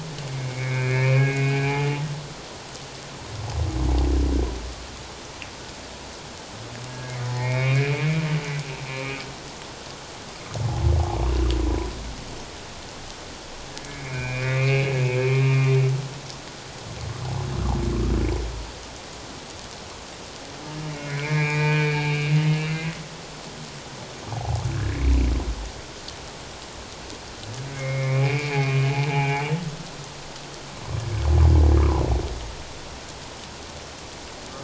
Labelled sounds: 0.3	1.9	humpback whale, 1.5 to 2.6 kHz
6.9	8.1	humpback whale, 1.6 to 2.6 kHz
8.9	9.2	humpback whale, 2.2 to 2.5 kHz
13.8	15.8	humpback whale, 1.2 to 2.8 kHz
20.9	22.8	humpback whale, 1.4 to 2.9 kHz
24.3	24.6	humpback whale, 0.78 to 0.88 kHz
27.7	29.6	humpback whale, 0.78 to 2.8 kHz

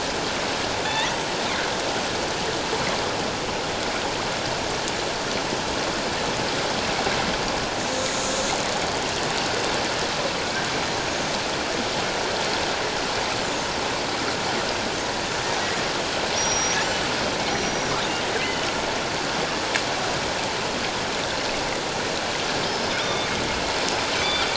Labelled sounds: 0.9	1.2	killer whale, northern resident, G clan, 1.7 to 2.1 kHz
8.0	8.2	killer whale, northern resident, G clan, 6.5 to 6.7 kHz
16.4	16.8	killer whale, northern resident, G clan, 5.4 to 5.8 kHz
17.5	17.9	killer whale, northern resident, G clan, 5.7 to 5.9 kHz
22.6	23.3	killer whale, northern resident, G clan, 3.5 to 5.3 kHz
24.2	24.5	killer whale, northern resident, G clan, 2.2 to 3.6 kHz

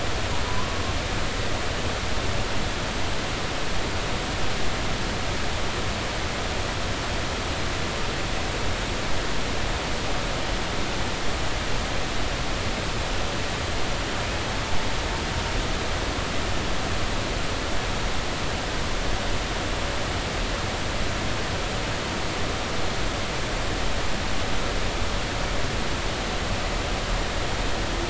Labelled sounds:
0.5	0.8	humpback whale, 0.93 to 1.2 kHz

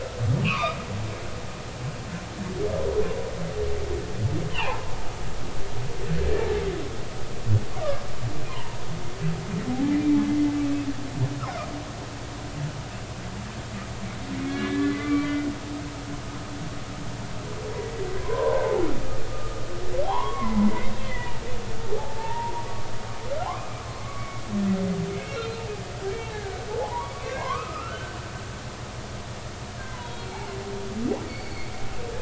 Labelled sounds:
0.4	0.8	humpback whale, 0.90 to 3.0 kHz
4.5	4.9	humpback whale, 0.80 to 3.2 kHz
7.7	8.8	humpback whale, 0.86 to 1.2 kHz
9.7	10.0	humpback whale, 0.80 to 0.90 kHz
14.5	15.4	humpback whale, 1.1 to 3.5 kHz
18.2	18.6	humpback whale, 0.90 to 1.1 kHz
19.3	21.3	humpback whale, 0.80 to 3.5 kHz
22.0	22.7	humpback whale, 0.80 to 2.0 kHz
24.0	24.4	humpback whale, 1.1 to 1.2 kHz
25.1	25.6	humpback whale, 2.1 to 4.2 kHz
26.2	28.2	humpback whale, 0.80 to 2.2 kHz
29.8	30.3	humpback whale, 0.90 to 4.0 kHz
31.3	31.7	humpback whale, 2.1 to 4.6 kHz

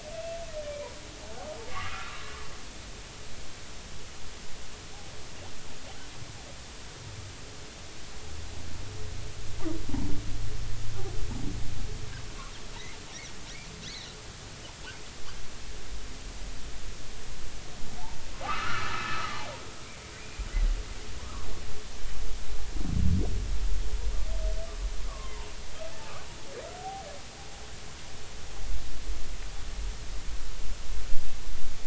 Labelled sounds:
0.1	0.9	humpback whale, 2.3 to 2.7 kHz
1.7	2.2	humpback whale, 1.0 to 2.3 kHz
12.7	13.0	humpback whale, 3.6 to 4.1 kHz
13.8	14.1	humpback whale, 3.5 to 4.5 kHz
18.4	19.4	humpback whale, 1.1 to 2.7 kHz
25.0	25.3	humpback whale, 0.99 to 1.2 kHz

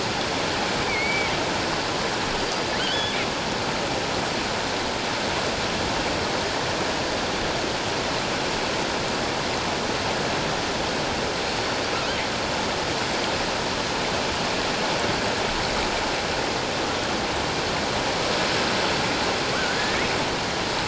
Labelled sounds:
0.9	1.3	killer whale, offshore, 2.1 to 4.7 kHz
2.8	3.2	killer whale, offshore, 2.9 to 3.5 kHz
19.6	20.1	killer whale, offshore, 1.7 to 7.0 kHz

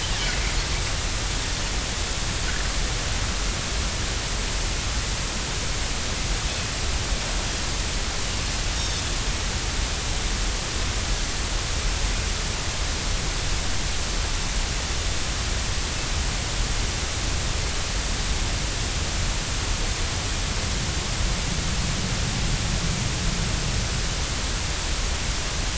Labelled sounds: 8.7	9.0	Pacific white-sided dolphin, 3.4 to 3.8 kHz

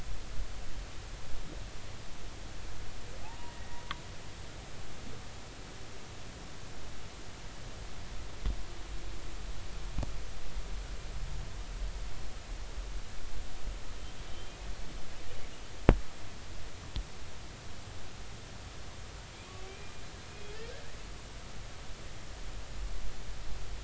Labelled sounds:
3.2	3.8	humpback whale, 0.80 to 2.0 kHz
14.3	14.6	humpback whale, 3.0 to 3.2 kHz
19.7	20.6	humpback whale, 2.3 to 2.5 kHz

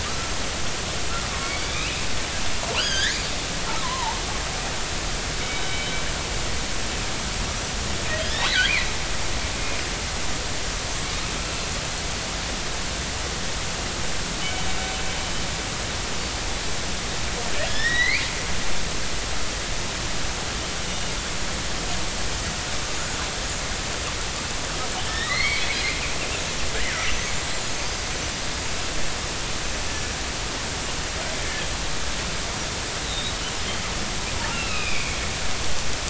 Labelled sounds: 0.0	0.3	killer whale, northern resident, 1.1 to 1.4 kHz
1.6	2.0	killer whale, northern resident, 2.2 to 3.9 kHz
2.8	4.2	killer whale, northern resident, 0.83 to 6.7 kHz
5.4	5.9	killer whale, northern resident, 2.9 to 3.8 kHz
7.4	7.8	killer whale, northern resident, 5.7 to 6.0 kHz
8.3	8.9	killer whale, northern resident, 1.4 to 4.2 kHz
17.7	18.3	killer whale, northern resident, 1.6 to 5.7 kHz
20.8	21.1	killer whale, northern resident, 2.8 to 3.0 kHz
25.1	25.9	killer whale, northern resident, 1.7 to 4.6 kHz
26.8	28.0	killer whale, northern resident, 1.4 to 6.6 kHz
33.0	33.3	killer whale, northern resident, 3.6 to 4.0 kHz
34.5	35.2	killer whale, northern resident, 1.2 to 2.8 kHz

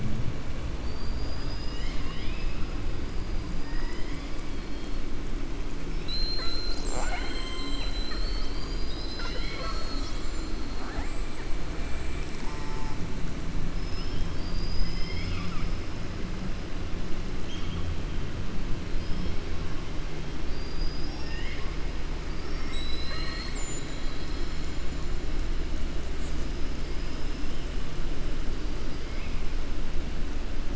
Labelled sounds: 0.7	2.7	killer whale, southern resident, 1.1 to 7.2 kHz
3.6	4.2	killer whale, southern resident, 0.91 to 3.0 kHz
13.7	15.7	killer whale, southern resident, 1.2 to 5.5 kHz

